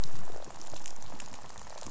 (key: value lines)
label: biophony, rattle
recorder: SoundTrap 500